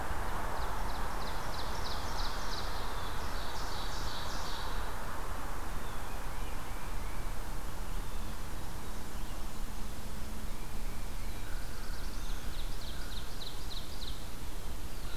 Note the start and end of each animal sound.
0.0s-5.0s: Ovenbird (Seiurus aurocapilla)
6.2s-7.3s: Tufted Titmouse (Baeolophus bicolor)
10.8s-12.5s: Black-throated Blue Warbler (Setophaga caerulescens)
11.1s-15.2s: American Crow (Corvus brachyrhynchos)
12.1s-14.3s: Ovenbird (Seiurus aurocapilla)
14.5s-15.2s: Black-throated Blue Warbler (Setophaga caerulescens)

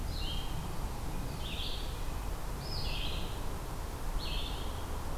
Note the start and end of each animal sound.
0.0s-5.2s: Red-eyed Vireo (Vireo olivaceus)
0.2s-3.8s: Red-breasted Nuthatch (Sitta canadensis)

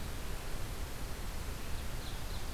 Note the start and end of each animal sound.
1.5s-2.5s: Ovenbird (Seiurus aurocapilla)

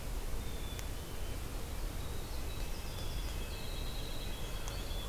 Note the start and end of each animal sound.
0.3s-1.4s: Black-capped Chickadee (Poecile atricapillus)
1.8s-5.1s: Winter Wren (Troglodytes hiemalis)
2.0s-5.1s: White-breasted Nuthatch (Sitta carolinensis)
2.3s-4.9s: Red-breasted Nuthatch (Sitta canadensis)
4.6s-5.1s: American Crow (Corvus brachyrhynchos)

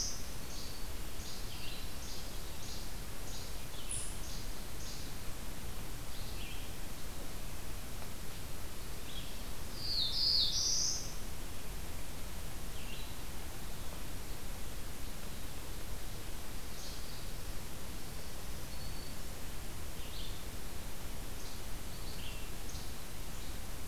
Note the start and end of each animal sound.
0.0s-9.8s: Red-eyed Vireo (Vireo olivaceus)
0.4s-5.1s: Least Flycatcher (Empidonax minimus)
9.7s-11.2s: Black-throated Blue Warbler (Setophaga caerulescens)
12.5s-23.9s: Red-eyed Vireo (Vireo olivaceus)
18.4s-19.4s: Black-throated Green Warbler (Setophaga virens)
22.5s-23.9s: Least Flycatcher (Empidonax minimus)

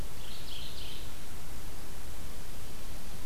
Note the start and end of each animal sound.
0.0s-1.3s: Mourning Warbler (Geothlypis philadelphia)

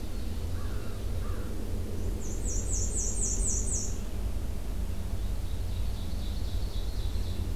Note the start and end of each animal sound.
0.0s-1.2s: Ovenbird (Seiurus aurocapilla)
0.0s-4.1s: Red-eyed Vireo (Vireo olivaceus)
0.5s-1.7s: American Crow (Corvus brachyrhynchos)
2.0s-4.0s: Black-and-white Warbler (Mniotilta varia)
5.2s-7.6s: Ovenbird (Seiurus aurocapilla)

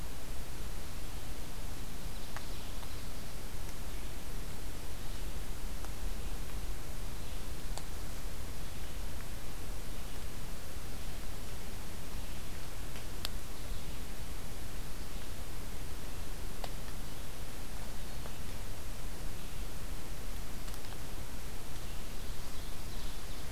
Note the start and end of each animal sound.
21.8s-23.4s: Ovenbird (Seiurus aurocapilla)

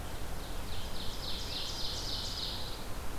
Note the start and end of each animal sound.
0.0s-2.9s: Ovenbird (Seiurus aurocapilla)
0.9s-3.0s: Pine Warbler (Setophaga pinus)

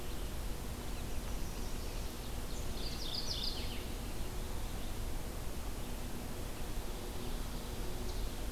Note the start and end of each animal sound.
1.1s-2.1s: Chestnut-sided Warbler (Setophaga pensylvanica)
2.6s-3.9s: Mourning Warbler (Geothlypis philadelphia)
4.3s-8.5s: Red-eyed Vireo (Vireo olivaceus)

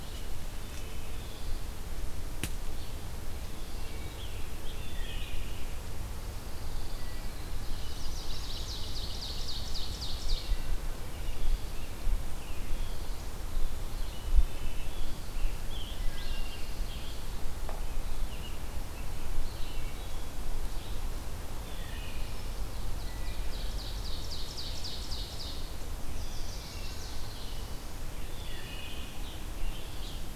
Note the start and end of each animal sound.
0.0s-1.5s: Wood Thrush (Hylocichla mustelina)
3.4s-4.3s: Wood Thrush (Hylocichla mustelina)
4.7s-5.5s: Wood Thrush (Hylocichla mustelina)
6.1s-7.5s: Pine Warbler (Setophaga pinus)
7.7s-10.8s: Ovenbird (Seiurus aurocapilla)
14.3s-16.7s: Wood Thrush (Hylocichla mustelina)
15.2s-17.4s: Scarlet Tanager (Piranga olivacea)
15.7s-17.4s: Pine Warbler (Setophaga pinus)
17.5s-20.4s: American Robin (Turdus migratorius)
21.6s-22.8s: Wood Thrush (Hylocichla mustelina)
23.0s-25.8s: Ovenbird (Seiurus aurocapilla)
26.0s-27.8s: Chestnut-sided Warbler (Setophaga pensylvanica)
26.6s-27.2s: Wood Thrush (Hylocichla mustelina)
28.2s-29.3s: Wood Thrush (Hylocichla mustelina)
29.5s-30.3s: Scarlet Tanager (Piranga olivacea)

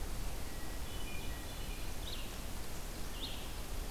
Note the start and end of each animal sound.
0.0s-3.9s: Red-eyed Vireo (Vireo olivaceus)
0.5s-1.8s: Hermit Thrush (Catharus guttatus)

